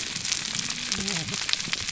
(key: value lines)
label: biophony, whup
recorder: SoundTrap 300